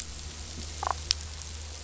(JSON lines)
{"label": "biophony, damselfish", "recorder": "SoundTrap 500"}